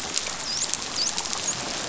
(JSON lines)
{"label": "biophony, dolphin", "recorder": "SoundTrap 500"}